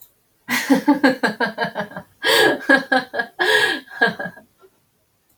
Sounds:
Laughter